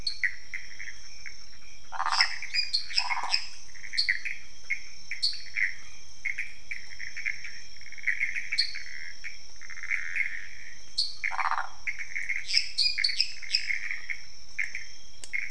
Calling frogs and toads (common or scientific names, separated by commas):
Pithecopus azureus, dwarf tree frog, waxy monkey tree frog, lesser tree frog